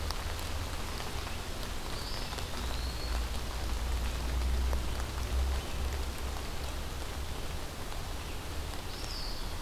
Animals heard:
Eastern Wood-Pewee (Contopus virens)

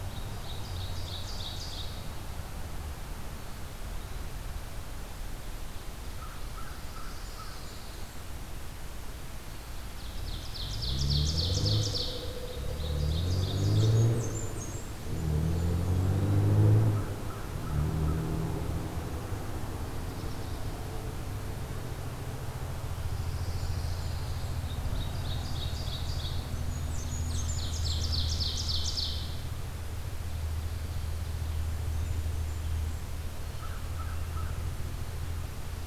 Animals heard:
Pine Warbler (Setophaga pinus), American Crow (Corvus brachyrhynchos), Blackburnian Warbler (Setophaga fusca), Ovenbird (Seiurus aurocapilla)

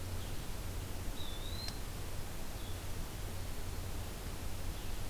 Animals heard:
Blue-headed Vireo (Vireo solitarius), Eastern Wood-Pewee (Contopus virens)

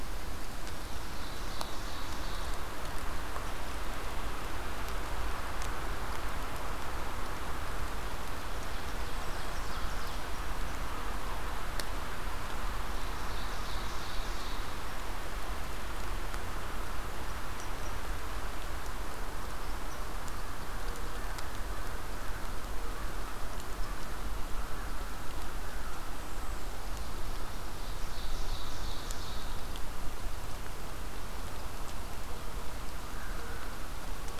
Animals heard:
Ovenbird (Seiurus aurocapilla), American Crow (Corvus brachyrhynchos)

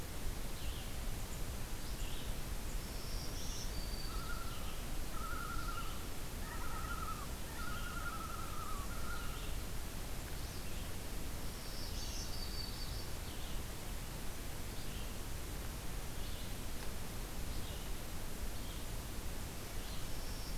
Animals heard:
Red-eyed Vireo (Vireo olivaceus), Yellow-rumped Warbler (Setophaga coronata), Black-throated Green Warbler (Setophaga virens), Common Loon (Gavia immer)

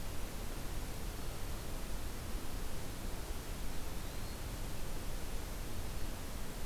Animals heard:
Eastern Wood-Pewee (Contopus virens)

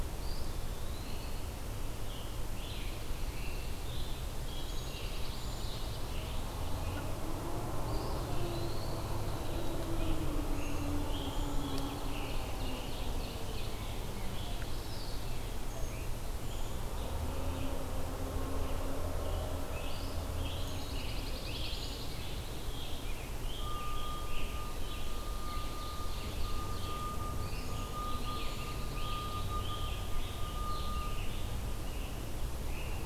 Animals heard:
Scarlet Tanager (Piranga olivacea), Pine Warbler (Setophaga pinus), Ovenbird (Seiurus aurocapilla), Eastern Wood-Pewee (Contopus virens), Brown Creeper (Certhia americana)

